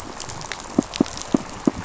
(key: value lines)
label: biophony, pulse
recorder: SoundTrap 500